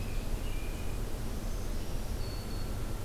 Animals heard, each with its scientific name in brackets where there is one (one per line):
Black-throated Green Warbler (Setophaga virens)
American Robin (Turdus migratorius)